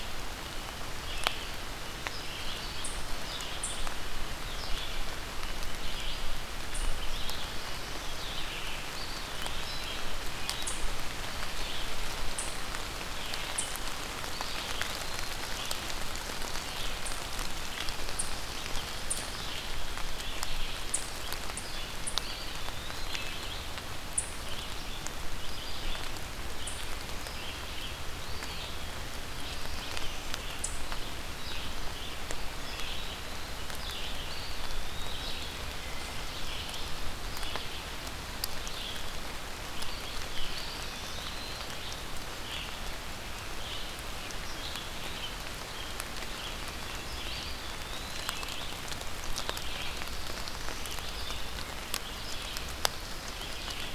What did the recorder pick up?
Red-eyed Vireo, Eastern Chipmunk, Eastern Wood-Pewee